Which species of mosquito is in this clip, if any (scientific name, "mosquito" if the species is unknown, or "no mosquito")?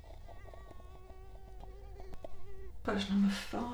Culex quinquefasciatus